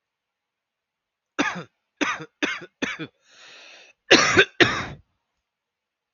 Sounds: Cough